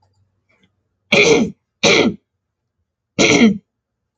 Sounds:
Throat clearing